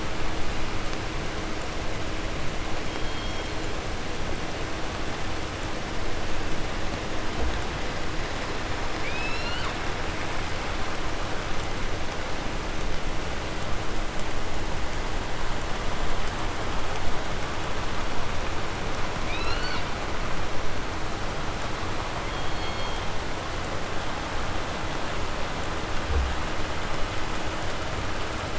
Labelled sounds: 2.7	3.8	killer whale, southern resident, call S16, 2.6 to 6.0 kHz
8.9	9.8	killer whale, southern resident, 0.50 to 8.0 kHz
19.3	20.0	killer whale, 0.44 to 6.7 kHz
22.2	23.3	killer whale, southern resident, call S16, 1.6 to 6.9 kHz

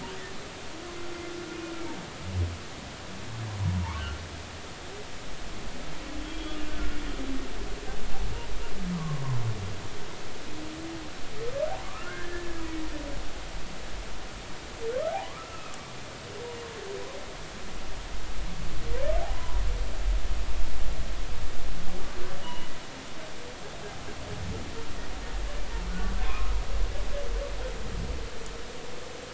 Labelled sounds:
3.6	4.2	humpback whale, 0.83 to 1.6 kHz
6.2	7.0	humpback whale, 1.3 to 3.4 kHz
8.9	9.2	humpback whale, 0.96 to 1.3 kHz
11.9	12.5	humpback whale, 0.99 to 1.8 kHz
15.1	15.7	humpback whale, 0.80 to 1.4 kHz
19.3	19.6	humpback whale, 0.93 to 1.1 kHz
22.4	22.7	humpback whale, 2.8 to 3.0 kHz
25.9	26.5	humpback whale, 0.96 to 1.5 kHz

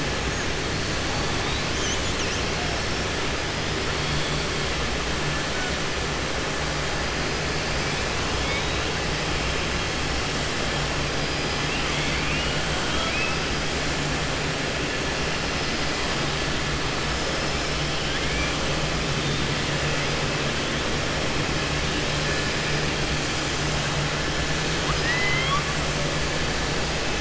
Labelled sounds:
12.8	13.4	killer whale, southern resident, 0.67 to 4.0 kHz
18.0	18.5	killer whale, southern resident, 1.6 to 3.4 kHz
24.8	25.7	killer whale, southern resident, 1.0 to 4.0 kHz

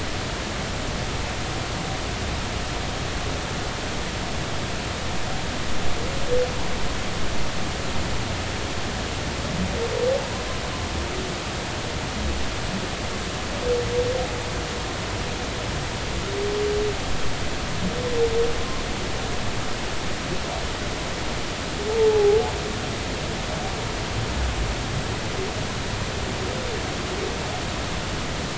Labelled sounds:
22.0	22.4	humpback whale, 0.80 to 0.93 kHz

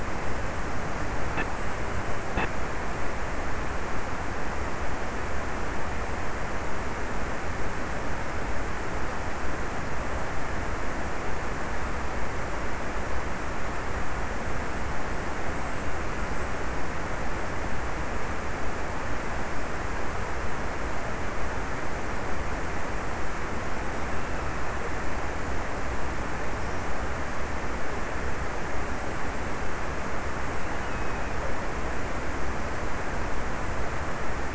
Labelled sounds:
30.3	32.3	killer whale, offshore, 1.8 to 2.7 kHz

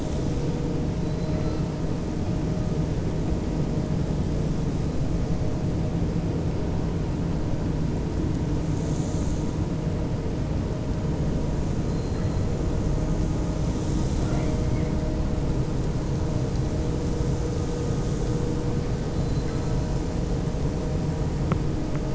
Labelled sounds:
1.0	1.6	killer whale, 3.9 to 4.9 kHz

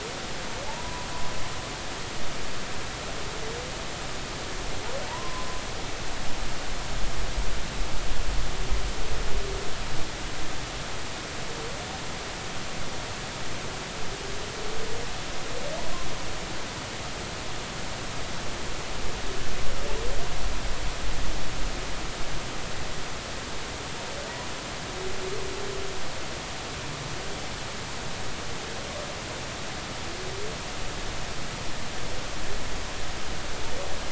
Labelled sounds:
0.6	1.1	humpback whale, 0.80 to 1.0 kHz
5.1	5.5	humpback whale, 0.86 to 1.1 kHz

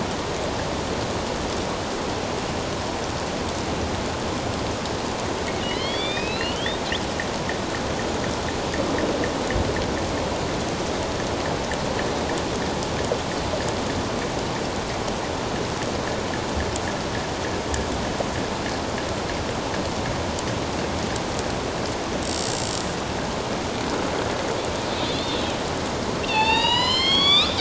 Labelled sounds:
5.6	6.8	killer whale, northern resident, A clan, AB subclan, 1.9 to 4.7 kHz
25.1	25.4	killer whale, northern resident, A clan, AB subclan, 3.2 to 3.7 kHz
26.2	27.5	killer whale, northern resident, A clan, AB subclan, 0.81 to 7.6 kHz

